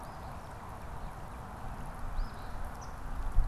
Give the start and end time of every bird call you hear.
0.0s-0.9s: Eastern Phoebe (Sayornis phoebe)
0.1s-1.9s: Northern Cardinal (Cardinalis cardinalis)
2.0s-3.0s: Eastern Phoebe (Sayornis phoebe)

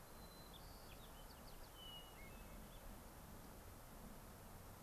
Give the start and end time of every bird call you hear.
0.0s-1.7s: White-crowned Sparrow (Zonotrichia leucophrys)
1.7s-3.0s: Hermit Thrush (Catharus guttatus)

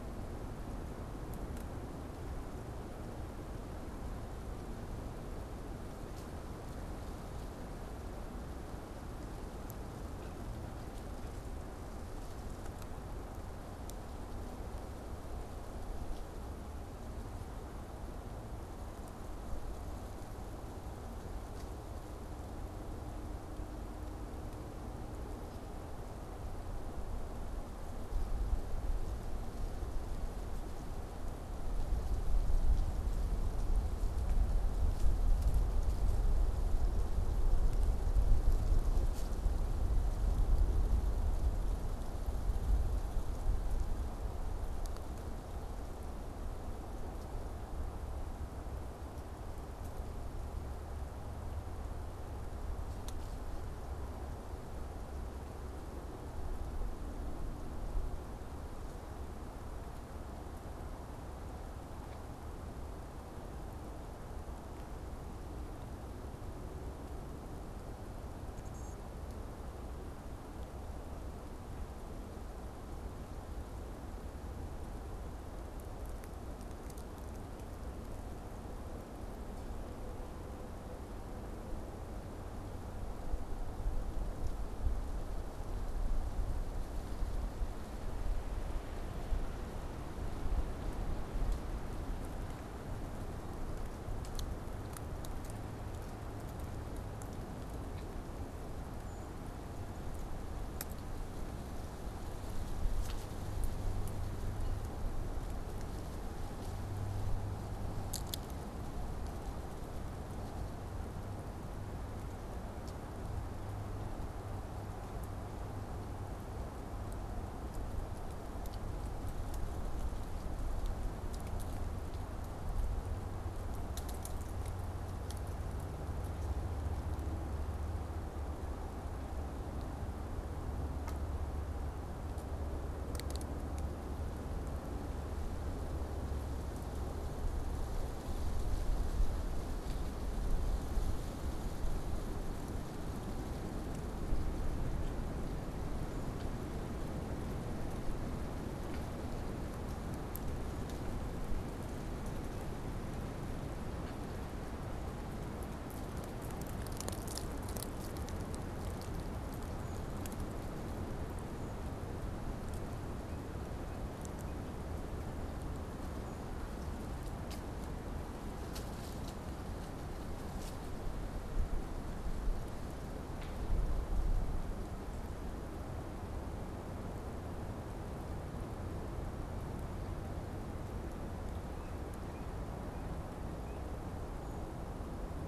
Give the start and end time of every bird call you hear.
159.7s-160.1s: Brown Creeper (Certhia americana)
181.6s-184.1s: Yellow-bellied Sapsucker (Sphyrapicus varius)

